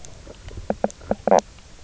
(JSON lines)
{"label": "biophony, knock croak", "recorder": "SoundTrap 300"}